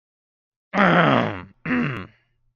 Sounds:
Throat clearing